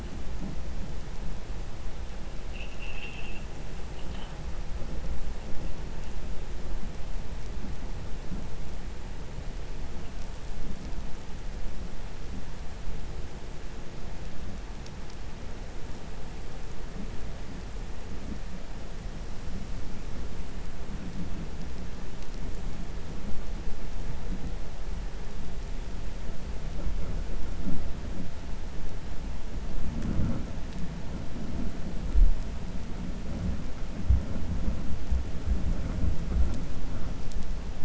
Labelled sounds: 2.4	3.4	vessel noise, 2.0 to 3.7 kHz

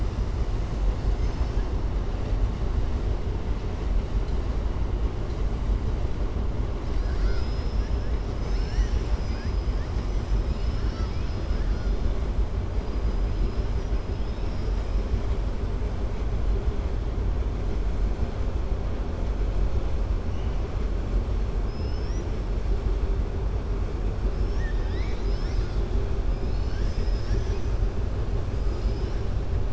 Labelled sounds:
21.6	22.3	killer whale, southern resident, 4.8 to 6.9 kHz
24.5	25.8	killer whale, southern resident, 1.6 to 7.0 kHz

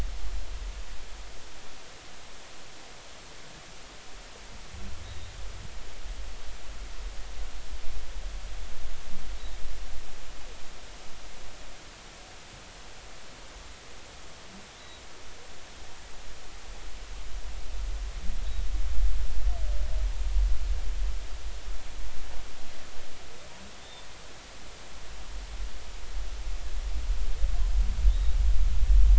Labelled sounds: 23.8	24.1	humpback whale, 3.4 to 3.7 kHz

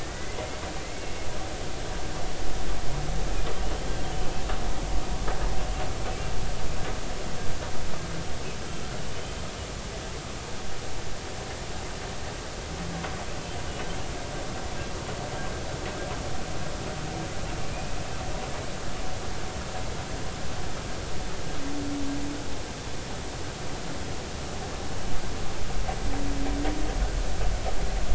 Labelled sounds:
0.0	0.4	humpback whale, 1.8 to 2.1 kHz
0.8	1.1	humpback whale, 2.0 to 2.3 kHz

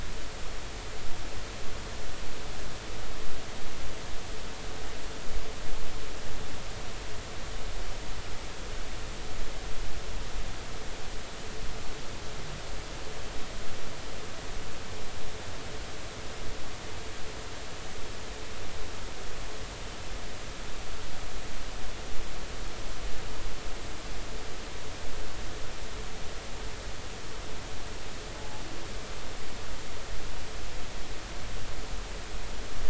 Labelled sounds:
28.3	28.6	humpback whale, 0.80 to 0.90 kHz

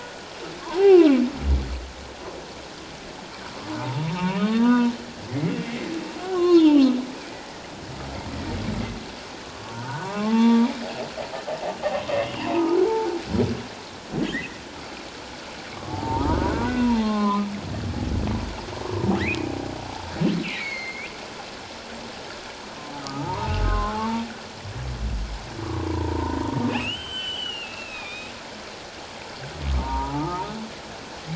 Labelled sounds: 0.8	1.1	humpback whale, 1.3 to 1.6 kHz
3.8	4.9	humpback whale, 0.84 to 2.7 kHz
5.3	6.9	humpback whale, 0.78 to 3.9 kHz
9.7	10.7	humpback whale, 0.78 to 1.3 kHz
12.2	12.8	humpback whale, 0.84 to 3.0 kHz
14.2	14.6	humpback whale, 1.6 to 2.1 kHz
15.9	17.5	humpback whale, 0.78 to 1.6 kHz
19.2	19.5	humpback whale, 1.6 to 2.7 kHz
20.4	21.1	humpback whale, 1.8 to 4.5 kHz
23.0	24.2	humpback whale, 0.81 to 1.6 kHz
25.6	26.4	humpback whale, 0.88 to 1.2 kHz
26.7	28.3	humpback whale, 1.2 to 7.8 kHz
29.7	30.5	humpback whale, 0.81 to 1.4 kHz

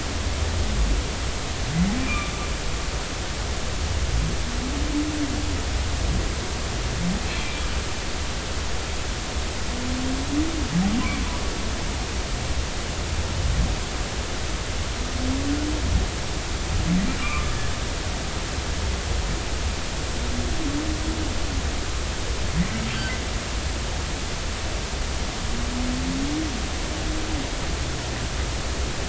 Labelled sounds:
2.0	2.3	humpback whale, 2.2 to 2.6 kHz
7.3	7.6	humpback whale, 2.2 to 2.4 kHz
17.2	17.7	humpback whale, 1.0 to 1.8 kHz
22.9	23.2	humpback whale, 1.5 to 1.6 kHz

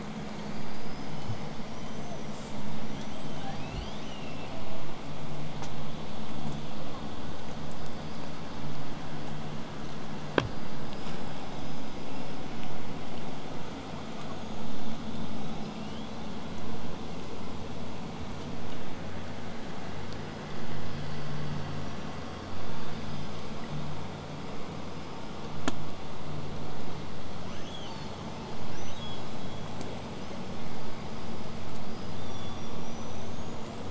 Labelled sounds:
0.3	2.5	killer whale, southern resident, 0.30 to 8.0 kHz
2.3	2.5	killer whale, southern resident, J pod, call S05, 4.4 to 8.0 kHz
2.8	3.4	killer whale, southern resident, 1.4 to 8.0 kHz
3.4	4.6	killer whale, southern resident, L pod, call S02iii, 0.66 to 8.0 kHz
10.3	12.6	killer whale, southern resident, 4.7 to 8.0 kHz
13.9	14.7	killer whale, southern resident, 6.2 to 6.8 kHz
15.6	16.3	killer whale, southern resident, 2.4 to 4.1 kHz
20.1	23.5	killer whale, southern resident, 4.7 to 8.0 kHz
27.4	28.5	killer whale, southern resident, L pod, call S02iii, 0.58 to 8.0 kHz
31.8	32.2	killer whale, southern resident, whistle, 4.3 to 8.0 kHz
32.1	32.9	killer whale, southern resident, L pod, call S16, 3.2 to 8.0 kHz
32.8	33.8	killer whale, southern resident, 5.7 to 8.0 kHz

